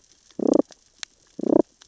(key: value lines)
label: biophony, damselfish
recorder: SoundTrap 600 or HydroMoth